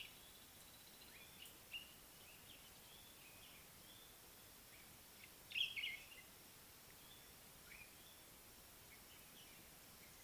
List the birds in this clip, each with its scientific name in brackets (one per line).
Common Bulbul (Pycnonotus barbatus)
White-browed Robin-Chat (Cossypha heuglini)